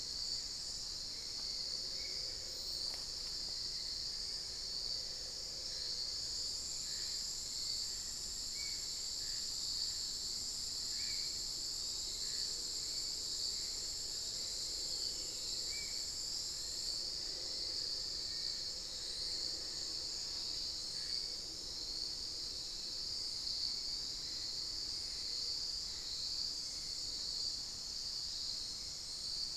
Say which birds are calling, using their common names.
Spot-winged Antshrike, Hauxwell's Thrush, unidentified bird, Black-faced Antthrush